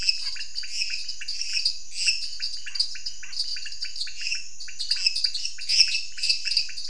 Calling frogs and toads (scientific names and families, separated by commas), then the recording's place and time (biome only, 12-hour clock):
Dendropsophus minutus (Hylidae), Dendropsophus nanus (Hylidae), Leptodactylus podicipinus (Leptodactylidae), Scinax fuscovarius (Hylidae)
Cerrado, 8:15pm